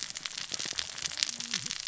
{"label": "biophony, cascading saw", "recorder": "SoundTrap 600 or HydroMoth"}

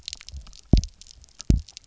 {"label": "biophony, double pulse", "recorder": "SoundTrap 300"}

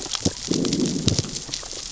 {"label": "biophony, growl", "recorder": "SoundTrap 600 or HydroMoth"}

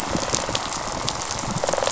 {"label": "biophony, rattle response", "recorder": "SoundTrap 500"}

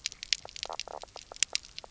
{"label": "biophony, knock croak", "recorder": "SoundTrap 300"}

